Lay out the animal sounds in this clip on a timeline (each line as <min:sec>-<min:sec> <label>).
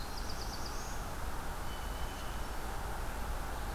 0:00.0-0:01.4 Black-throated Blue Warbler (Setophaga caerulescens)
0:01.5-0:02.5 Blue Jay (Cyanocitta cristata)